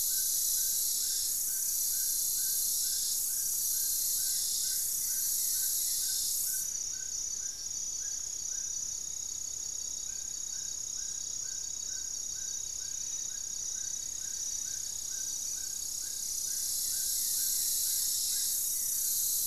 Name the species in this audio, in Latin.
Formicarius analis, Trogon ramonianus, Akletos goeldii, unidentified bird